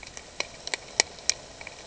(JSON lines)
{"label": "ambient", "recorder": "HydroMoth"}